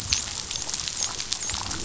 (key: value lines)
label: biophony, dolphin
recorder: SoundTrap 500